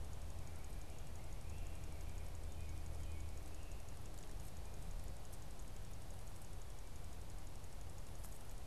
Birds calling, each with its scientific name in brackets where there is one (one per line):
American Robin (Turdus migratorius)